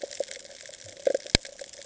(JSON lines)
{"label": "ambient", "recorder": "HydroMoth"}